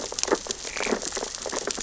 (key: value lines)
label: biophony, sea urchins (Echinidae)
recorder: SoundTrap 600 or HydroMoth